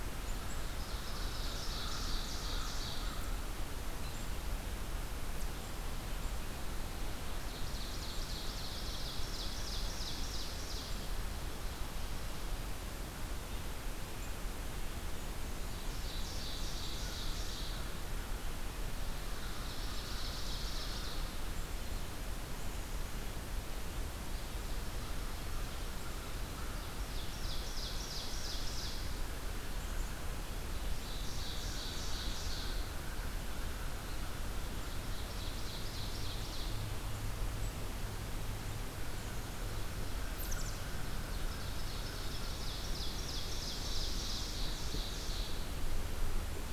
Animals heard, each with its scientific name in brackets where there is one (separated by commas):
American Crow (Corvus brachyrhynchos), Ovenbird (Seiurus aurocapilla)